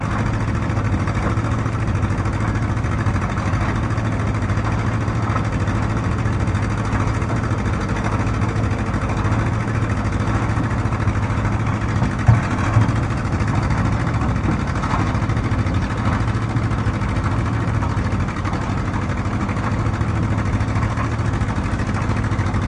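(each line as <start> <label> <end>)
0.0 A boat engine runs loudly and repeatedly outdoors. 22.7
0.0 Background outdoor noise, muffled. 22.7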